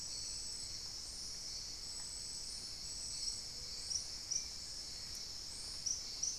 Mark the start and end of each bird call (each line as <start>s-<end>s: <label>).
3.1s-4.2s: Ruddy Quail-Dove (Geotrygon montana)
4.0s-5.8s: unidentified bird
4.3s-6.4s: Spot-winged Antshrike (Pygiptila stellaris)